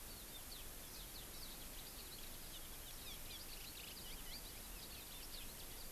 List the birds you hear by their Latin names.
Estrilda astrild